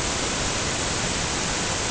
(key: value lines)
label: ambient
recorder: HydroMoth